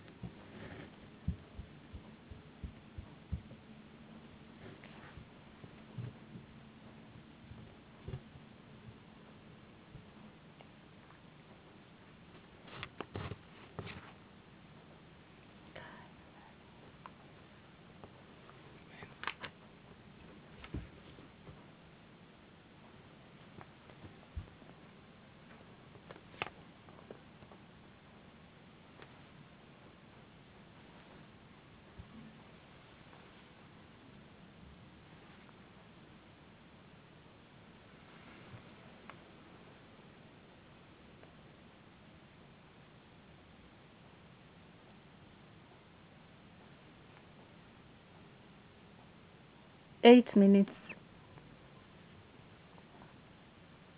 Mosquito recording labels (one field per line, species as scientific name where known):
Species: no mosquito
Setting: insect culture